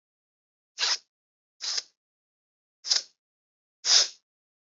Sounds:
Sniff